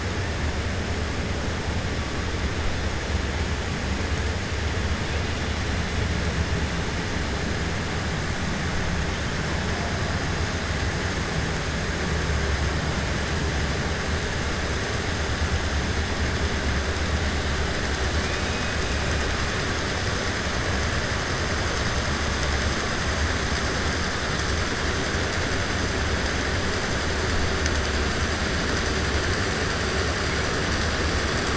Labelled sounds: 18.2	18.7	killer whale, 2.0 to 2.6 kHz

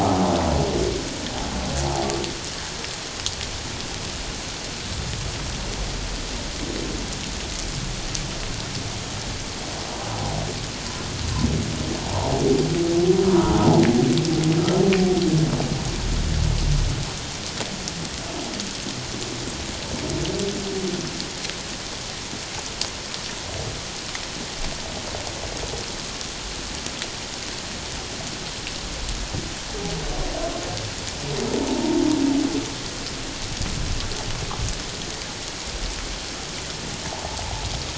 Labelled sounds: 12.0	12.3	humpback whale, 0.78 to 1.1 kHz
13.3	13.7	humpback whale, 0.81 to 1.5 kHz
31.7	32.0	humpback whale, 0.84 to 0.97 kHz

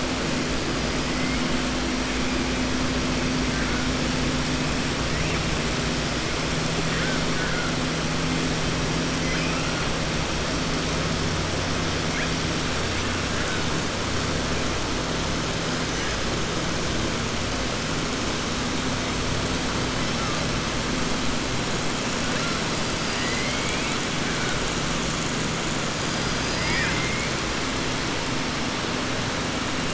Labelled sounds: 7.3	7.7	killer whale, southern resident, 1.1 to 2.3 kHz
9.2	9.6	killer whale, southern resident, 1.5 to 3.2 kHz
26.5	27.3	killer whale, southern resident, 0.95 to 3.3 kHz

